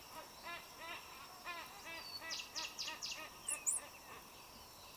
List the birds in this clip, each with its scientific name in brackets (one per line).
Cinnamon Bracken-Warbler (Bradypterus cinnamomeus)
White-eyed Slaty-Flycatcher (Melaenornis fischeri)